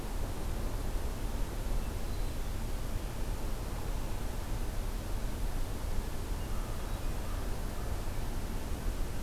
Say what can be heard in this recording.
forest ambience